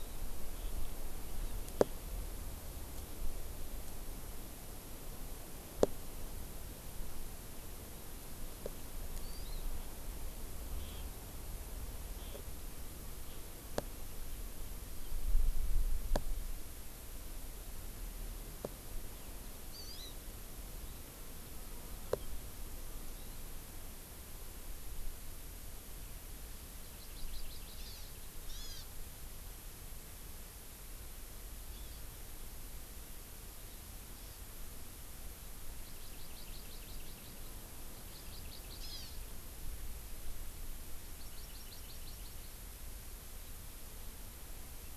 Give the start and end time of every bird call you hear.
0.5s-1.0s: Eurasian Skylark (Alauda arvensis)
9.2s-9.6s: Hawaii Amakihi (Chlorodrepanis virens)
19.7s-20.1s: Hawaii Amakihi (Chlorodrepanis virens)
26.8s-28.1s: Hawaii Amakihi (Chlorodrepanis virens)
28.5s-28.9s: Hawaii Amakihi (Chlorodrepanis virens)
31.7s-32.0s: Hawaii Amakihi (Chlorodrepanis virens)
34.1s-34.4s: Hawaii Amakihi (Chlorodrepanis virens)
35.8s-37.5s: Hawaii Amakihi (Chlorodrepanis virens)
38.1s-39.3s: Hawaii Amakihi (Chlorodrepanis virens)
41.0s-42.6s: Hawaii Amakihi (Chlorodrepanis virens)

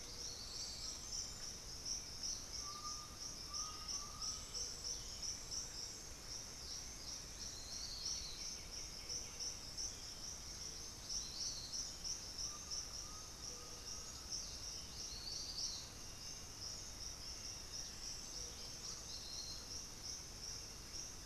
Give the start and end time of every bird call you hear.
2.2s-7.5s: unidentified bird
2.6s-4.6s: Undulated Tinamou (Crypturellus undulatus)
8.0s-10.0s: White-winged Becard (Pachyramphus polychopterus)
12.1s-14.3s: Undulated Tinamou (Crypturellus undulatus)

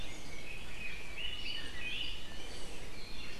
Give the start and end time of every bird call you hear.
0.0s-2.3s: Red-billed Leiothrix (Leiothrix lutea)

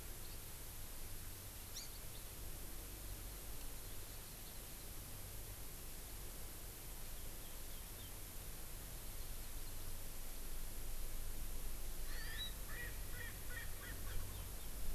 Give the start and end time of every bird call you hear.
1.8s-2.0s: Hawaii Amakihi (Chlorodrepanis virens)
12.1s-14.2s: Erckel's Francolin (Pternistis erckelii)

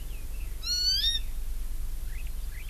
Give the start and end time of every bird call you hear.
0.6s-1.2s: Hawaii Amakihi (Chlorodrepanis virens)

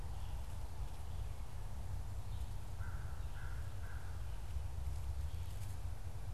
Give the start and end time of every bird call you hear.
2.5s-4.5s: American Crow (Corvus brachyrhynchos)

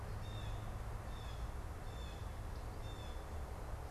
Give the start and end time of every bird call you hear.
0.0s-3.9s: Blue Jay (Cyanocitta cristata)

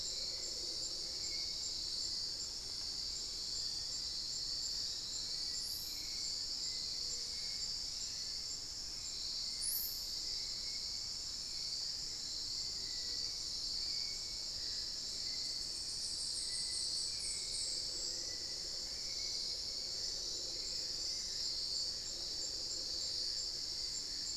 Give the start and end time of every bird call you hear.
0.0s-24.4s: Hauxwell's Thrush (Turdus hauxwelli)
15.3s-18.7s: unidentified bird

